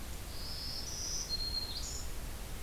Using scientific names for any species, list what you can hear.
Setophaga virens